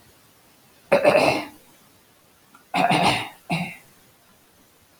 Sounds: Throat clearing